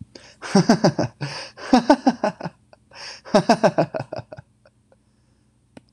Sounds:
Laughter